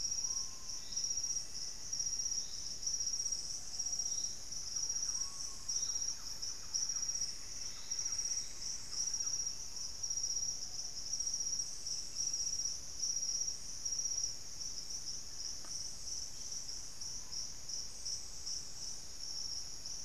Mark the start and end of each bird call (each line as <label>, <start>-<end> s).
Screaming Piha (Lipaugus vociferans), 0.1-10.2 s
Black-faced Antthrush (Formicarius analis), 0.5-3.0 s
Thrush-like Wren (Campylorhynchus turdinus), 4.6-10.1 s
Plumbeous Antbird (Myrmelastes hyperythrus), 6.2-8.9 s
Screaming Piha (Lipaugus vociferans), 16.9-17.5 s